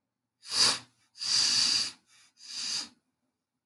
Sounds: Sniff